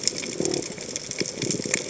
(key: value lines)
label: biophony
recorder: HydroMoth